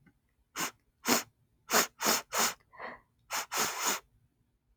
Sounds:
Sniff